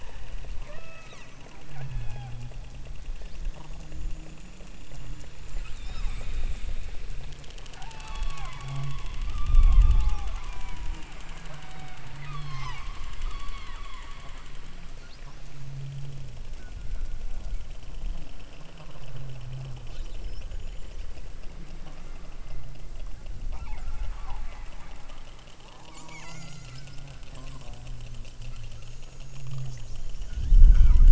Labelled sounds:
0.6	1.3	killer whale, southern Alaska resident, 0.39 to 8.0 kHz
1.8	2.6	killer whale, southern Alaska resident, 0.55 to 5.2 kHz
5.5	6.4	killer whale, southern Alaska resident, 0.66 to 8.0 kHz
7.7	11.1	killer whale, southern Alaska resident, 0.27 to 4.8 kHz
11.4	12.9	killer whale, southern Alaska resident, 0.46 to 8.0 kHz
13.2	13.8	killer whale, southern Alaska resident, 0.73 to 4.6 kHz
23.5	24.0	killer whale, southern Alaska resident, 0.57 to 2.9 kHz
25.8	26.8	killer whale, southern Alaska resident, 0.27 to 8.0 kHz
30.6	31.0	killer whale, southern Alaska resident, 0.66 to 6.5 kHz

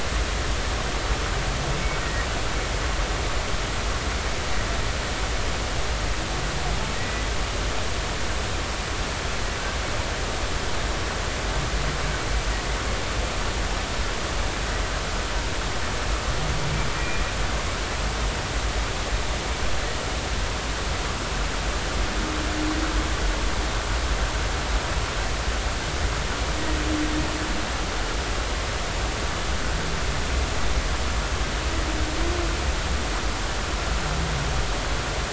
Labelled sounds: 2.0	2.3	humpback whale, 1.8 to 1.9 kHz
6.9	7.3	humpback whale, 1.9 to 2.0 kHz
16.9	17.2	humpback whale, 2.3 to 2.6 kHz

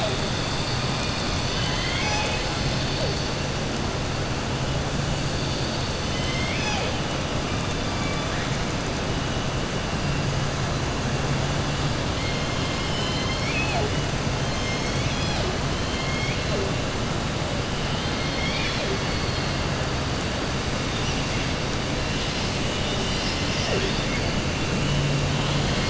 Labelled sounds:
1.4	2.5	killer whale, southern resident, 0.84 to 7.6 kHz
6.0	7.0	killer whale, southern resident, 0.58 to 6.8 kHz
7.9	8.5	killer whale, southern resident, 1.2 to 2.4 kHz
12.5	13.9	killer whale, southern resident, 0.47 to 5.6 kHz
15.8	16.5	killer whale, southern resident, 2.1 to 3.4 kHz
17.9	18.9	killer whale, southern resident, 1.7 to 5.5 kHz

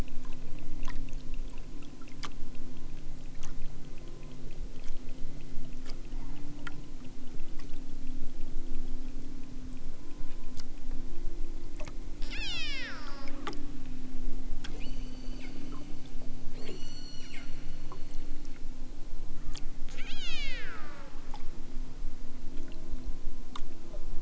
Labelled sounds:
12.2	13.3	killer whale, southern Alaska resident, 0.78 to 8.0 kHz
14.7	15.5	killer whale, southern Alaska resident, 1.9 to 8.0 kHz
16.6	17.4	killer whale, southern Alaska resident, 1.1 to 8.0 kHz
19.9	21.2	killer whale, southern Alaska resident, 0.60 to 8.0 kHz

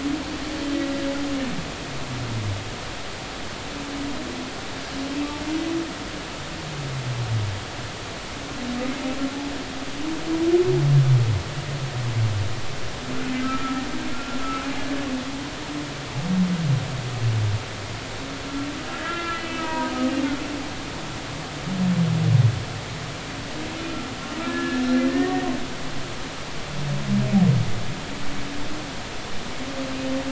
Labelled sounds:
13.4	14.4	humpback whale, 1.2 to 1.4 kHz
18.9	20.1	humpback whale, 0.90 to 3.1 kHz
24.5	25.5	humpback whale, 1.6 to 2.0 kHz

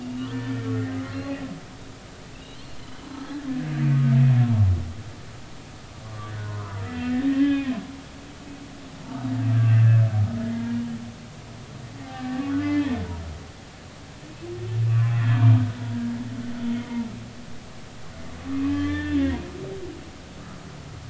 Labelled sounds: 0.0	0.7	humpback whale, 1.7 to 3.6 kHz
2.8	3.1	humpback whale, 2.9 to 3.1 kHz
6.0	7.7	humpback whale, 0.80 to 3.2 kHz
9.5	10.8	humpback whale, 0.90 to 2.0 kHz
12.0	12.9	humpback whale, 0.80 to 3.4 kHz
14.9	15.4	humpback whale, 2.7 to 3.4 kHz
16.7	17.0	humpback whale, 2.0 to 3.2 kHz
18.5	19.2	humpback whale, 1.1 to 3.6 kHz
19.7	20.2	humpback whale, 1.7 to 3.3 kHz

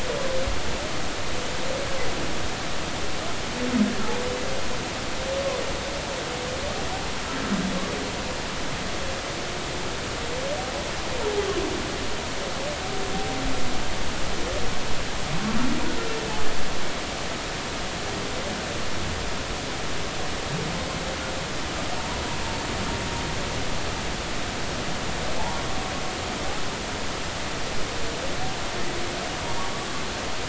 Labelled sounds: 22.0	22.2	humpback whale, 0.86 to 1.0 kHz

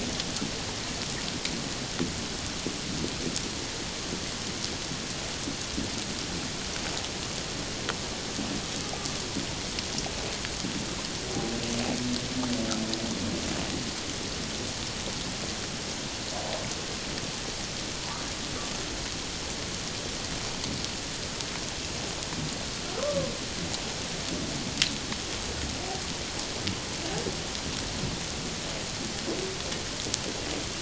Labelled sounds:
23.0	23.3	humpback whale, 0.97 to 1.2 kHz

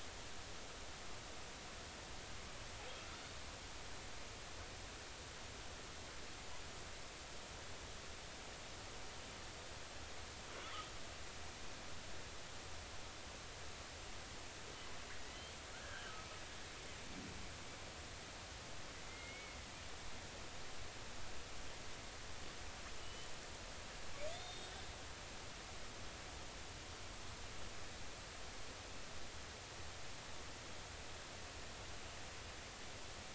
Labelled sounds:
15.3	16.3	killer whale, northern resident, G clan, 1.2 to 3.3 kHz
19.1	19.6	killer whale, northern resident, G clan, 2.0 to 2.3 kHz
23.0	23.3	killer whale, northern resident, G clan, 2.9 to 3.1 kHz
24.3	24.7	killer whale, northern resident, G clan, 3.3 to 3.8 kHz

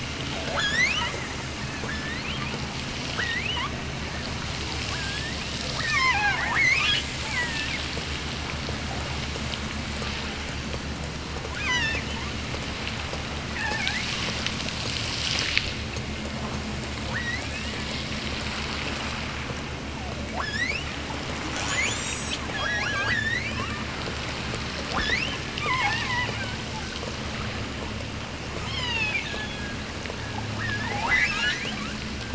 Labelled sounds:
0.4	1.2	killer whale, offshore, 0.34 to 8.0 kHz
1.8	2.6	killer whale, offshore, 1.4 to 4.8 kHz
3.1	3.9	killer whale, offshore, 0.70 to 3.7 kHz
4.9	7.9	killer whale, offshore, 0.43 to 6.7 kHz
11.5	12.2	killer whale, offshore, 0.73 to 7.2 kHz
13.5	14.2	killer whale, offshore, 0.57 to 2.9 kHz
17.1	17.9	killer whale, offshore, 0.61 to 6.2 kHz
20.3	21.0	killer whale, offshore, 0.48 to 8.0 kHz
21.5	23.8	killer whale, offshore, 0.39 to 8.0 kHz
24.9	26.5	killer whale, offshore, 0.43 to 6.8 kHz
28.5	29.9	killer whale, offshore, 0.52 to 7.4 kHz
30.5	31.8	killer whale, offshore, 0.55 to 7.4 kHz

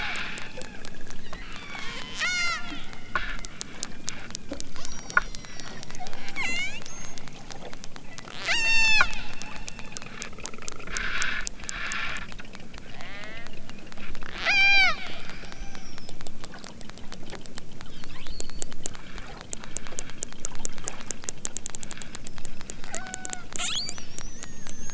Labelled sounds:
1.5	2.7	killer whale, southern Alaska resident, 0.74 to 8.0 kHz
4.8	7.1	killer whale, southern Alaska resident, 0.69 to 8.0 kHz
8.4	9.2	killer whale, southern Alaska resident, 0.32 to 8.0 kHz
12.8	13.6	killer whale, southern Alaska resident, 0.28 to 5.0 kHz
14.3	15.0	killer whale, southern Alaska resident, 0.46 to 8.0 kHz
22.8	23.5	killer whale, southern Alaska resident, 0.32 to 5.4 kHz

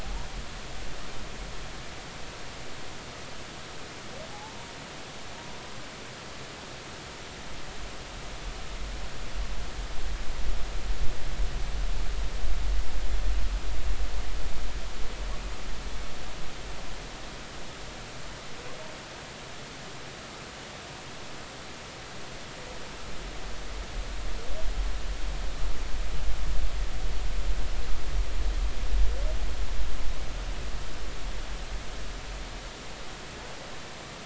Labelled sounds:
4.3	4.7	humpback whale, 0.80 to 1.1 kHz

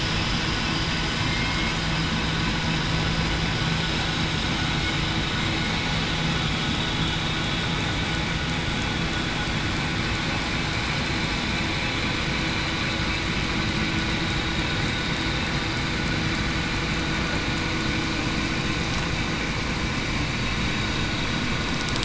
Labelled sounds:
1.2	1.7	killer whale, southern resident, 2.1 to 2.2 kHz
3.8	4.2	killer whale, southern resident, 7.4 to 7.5 kHz

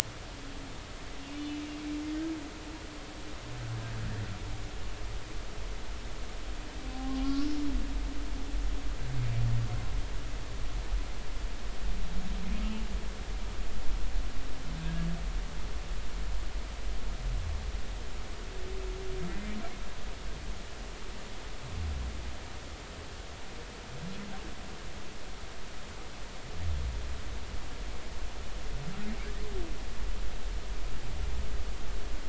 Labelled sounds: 1.3	1.6	humpback whale, 2.8 to 3.0 kHz
6.8	7.5	humpback whale, 0.80 to 1.2 kHz
12.6	12.9	humpback whale, 2.7 to 2.9 kHz
14.8	15.1	humpback whale, 1.6 to 1.7 kHz
19.3	19.6	humpback whale, 1.9 to 2.1 kHz

